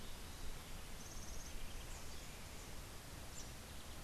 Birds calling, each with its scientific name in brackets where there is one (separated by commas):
House Wren (Troglodytes aedon)